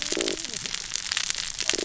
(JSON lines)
{"label": "biophony, cascading saw", "recorder": "SoundTrap 600 or HydroMoth"}